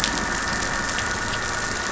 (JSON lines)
{"label": "anthrophony, boat engine", "recorder": "SoundTrap 500"}